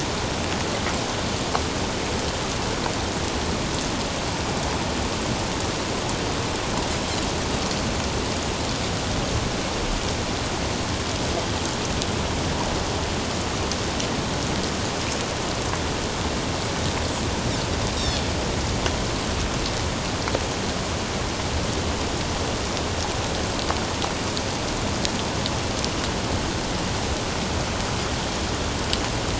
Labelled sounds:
18.0	18.2	Pacific white-sided dolphin, 3.3 to 3.9 kHz

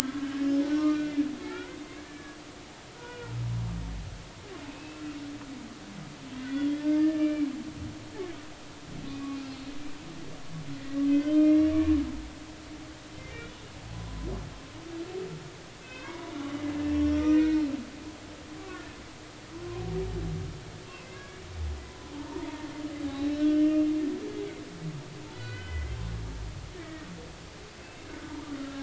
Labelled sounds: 0.2	1.7	humpback whale, 0.99 to 5.8 kHz
2.0	2.4	humpback whale, 1.6 to 1.8 kHz
3.0	3.4	humpback whale, 0.86 to 1.5 kHz
4.7	5.0	humpback whale, 2.4 to 2.8 kHz
6.4	7.5	humpback whale, 1.6 to 2.8 kHz
9.1	9.7	humpback whale, 2.4 to 4.4 kHz
11.1	11.7	humpback whale, 1.4 to 2.3 kHz
15.8	17.6	humpback whale, 0.86 to 6.0 kHz
18.6	19.0	humpback whale, 1.0 to 1.9 kHz
20.9	21.4	humpback whale, 1.6 to 2.8 kHz
22.1	22.7	humpback whale, 0.83 to 1.1 kHz
23.0	23.9	humpback whale, 0.80 to 3.1 kHz
25.3	26.0	humpback whale, 1.4 to 4.0 kHz
26.8	28.3	humpback whale, 1.4 to 2.7 kHz
28.6	28.8	humpback whale, 1.3 to 1.4 kHz

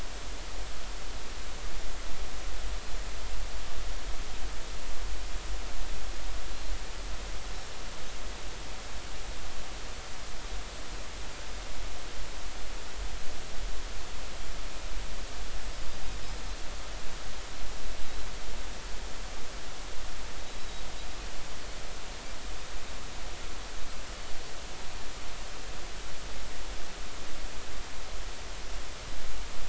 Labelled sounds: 20.6	20.8	Pacific white-sided dolphin, 3.7 to 4.0 kHz

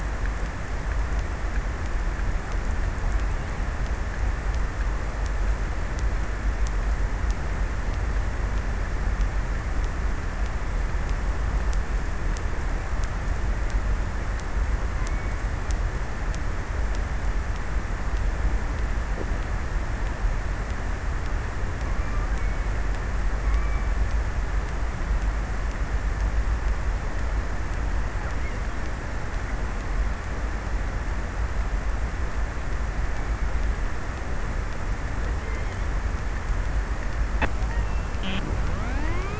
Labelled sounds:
21.4	22.5	killer whale, offshore, 0.83 to 2.6 kHz
23.2	24.5	killer whale, offshore, 0.87 to 2.6 kHz

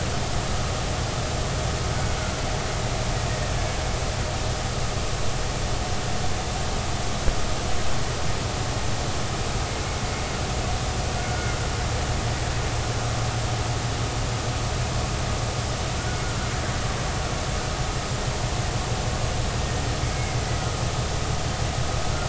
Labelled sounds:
11.2	11.5	killer whale, Bigg's (transient), 1.4 to 1.5 kHz

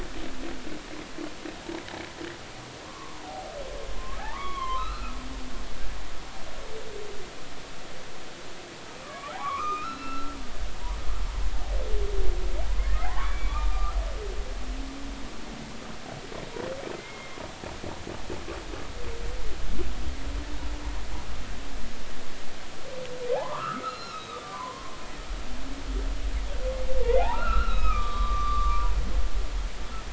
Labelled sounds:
2.8	3.5	humpback whale, 0.80 to 1.2 kHz
4.2	5.2	humpback whale, 0.80 to 4.3 kHz
9.0	10.3	humpback whale, 0.80 to 2.8 kHz
13.0	14.0	humpback whale, 0.80 to 3.5 kHz
16.9	17.4	humpback whale, 2.0 to 2.2 kHz
23.3	24.9	humpback whale, 0.80 to 4.2 kHz
27.0	28.8	humpback whale, 0.80 to 5.2 kHz

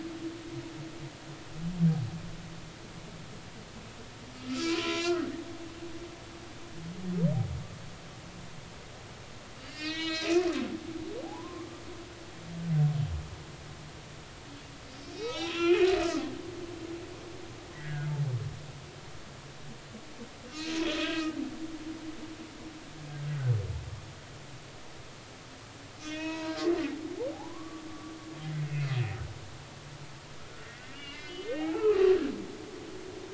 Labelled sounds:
4.5	5.4	humpback whale, 0.96 to 5.8 kHz
9.6	10.4	humpback whale, 1.2 to 5.8 kHz
11.2	11.7	humpback whale, 0.80 to 1.2 kHz
15.1	16.3	humpback whale, 0.96 to 5.9 kHz
17.7	18.1	humpback whale, 1.4 to 2.0 kHz
20.5	20.8	humpback whale, 2.4 to 4.2 kHz
21.1	21.4	humpback whale, 1.2 to 1.3 kHz
26.0	26.6	humpback whale, 0.90 to 4.0 kHz
27.3	28.7	humpback whale, 0.80 to 2.1 kHz
30.6	32.0	humpback whale, 0.80 to 4.8 kHz

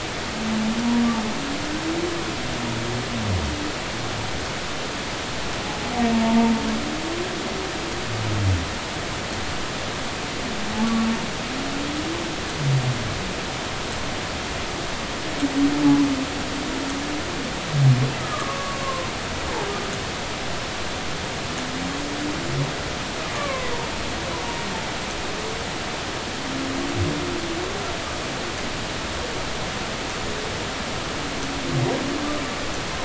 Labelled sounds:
6.1	6.5	humpback whale, 0.86 to 0.96 kHz
18.2	19.1	humpback whale, 0.99 to 1.3 kHz
23.3	23.8	humpback whale, 0.99 to 2.4 kHz

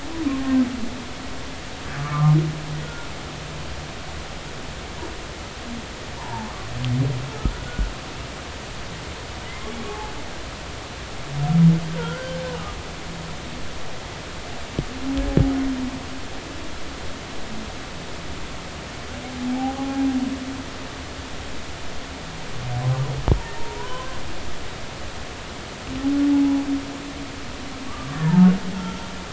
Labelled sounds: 2.0	3.1	humpback whale, 0.99 to 1.5 kHz
7.2	7.9	humpback whale, 0.83 to 1.5 kHz
9.4	10.1	humpback whale, 0.80 to 2.2 kHz
11.9	12.4	humpback whale, 1.3 to 1.6 kHz
19.5	20.1	humpback whale, 0.80 to 0.90 kHz
23.6	24.2	humpback whale, 0.86 to 1.1 kHz
26.3	26.6	humpback whale, 0.80 to 1.0 kHz
27.9	29.0	humpback whale, 1.1 to 1.9 kHz

